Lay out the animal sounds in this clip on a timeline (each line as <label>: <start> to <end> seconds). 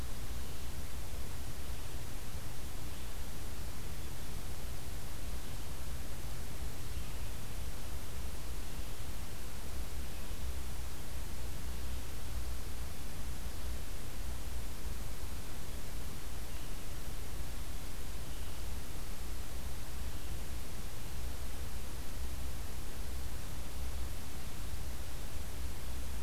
Red-eyed Vireo (Vireo olivaceus): 0.0 to 7.3 seconds
Red-eyed Vireo (Vireo olivaceus): 16.3 to 20.4 seconds